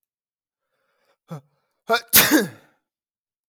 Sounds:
Sneeze